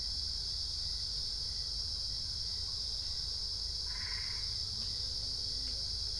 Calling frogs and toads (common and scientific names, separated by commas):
Boana albopunctata